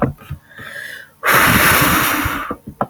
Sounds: Sigh